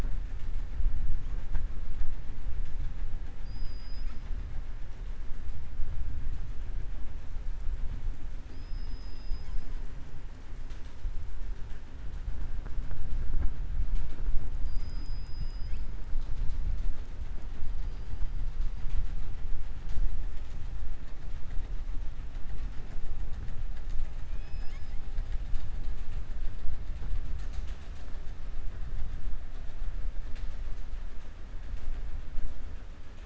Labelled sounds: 3.3	4.3	killer whale, southern resident, 1.3 to 6.7 kHz
8.4	9.7	killer whale, southern resident, 2.7 to 7.3 kHz

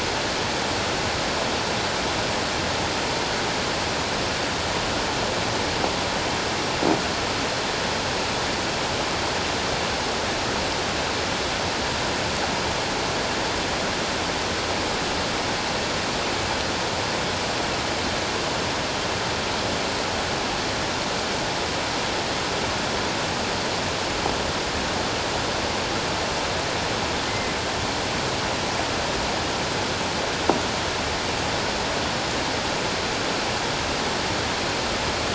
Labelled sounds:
27.3	27.6	killer whale, offshore, 2.0 to 2.2 kHz

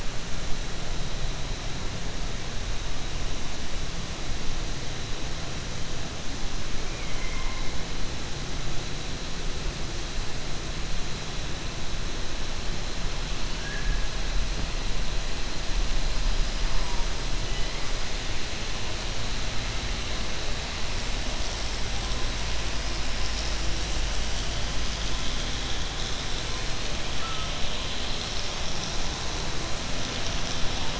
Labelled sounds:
6.8	7.7	killer whale, southern resident, 0.94 to 3.2 kHz
13.5	14.0	killer whale, southern resident, 1.5 to 2.2 kHz

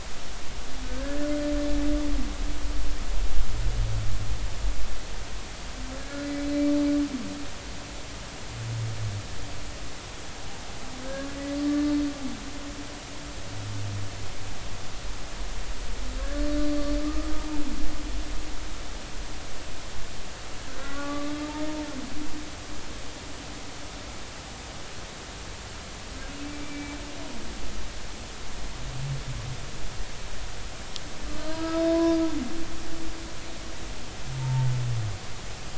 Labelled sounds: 0.8	1.3	humpback whale, 1.5 to 1.8 kHz
11.6	11.8	humpback whale, 1.1 to 1.2 kHz
16.2	17.0	humpback whale, 1.5 to 4.5 kHz
18.0	18.3	humpback whale, 1.1 to 1.3 kHz
20.8	21.4	humpback whale, 1.1 to 1.5 kHz
26.4	27.0	humpback whale, 2.2 to 2.4 kHz
31.3	32.2	humpback whale, 0.96 to 1.7 kHz
34.4	34.7	humpback whale, 0.83 to 0.96 kHz

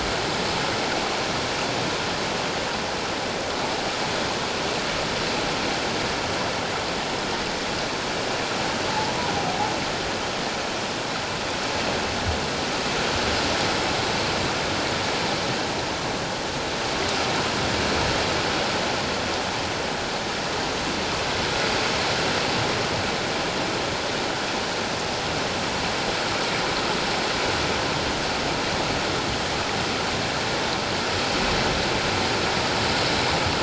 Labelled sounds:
8.9	9.2	humpback whale, 0.81 to 1.0 kHz

